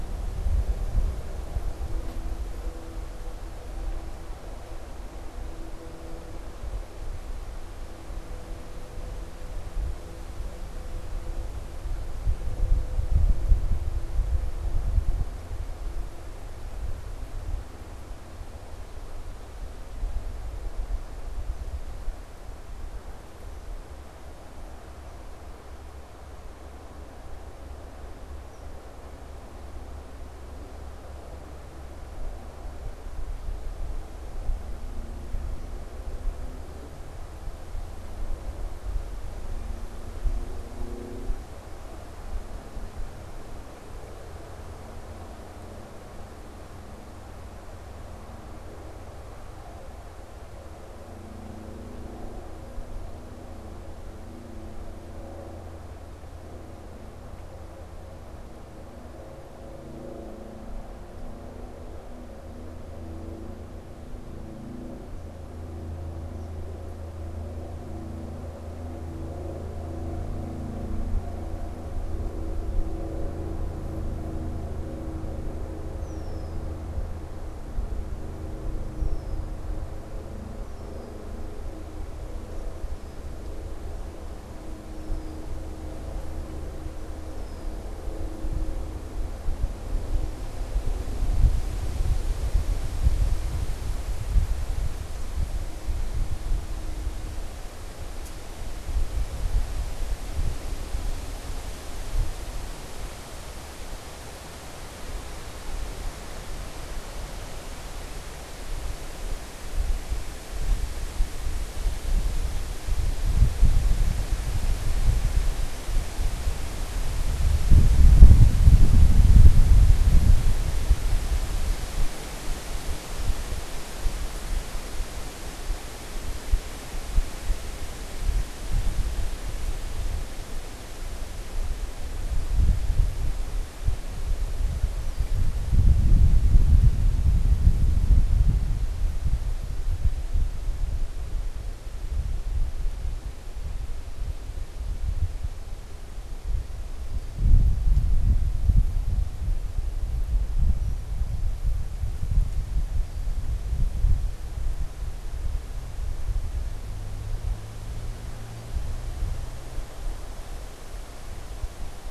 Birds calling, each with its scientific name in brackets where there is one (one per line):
unidentified bird
Red-winged Blackbird (Agelaius phoeniceus)